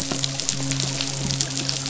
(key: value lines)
label: biophony, midshipman
recorder: SoundTrap 500